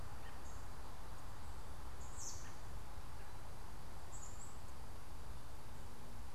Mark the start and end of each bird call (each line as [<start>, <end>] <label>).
[2.05, 2.55] American Robin (Turdus migratorius)
[4.05, 4.65] unidentified bird